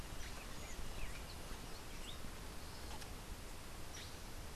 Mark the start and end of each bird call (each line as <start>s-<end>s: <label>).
0.2s-2.2s: Buff-throated Saltator (Saltator maximus)
2.6s-4.5s: Black-headed Saltator (Saltator atriceps)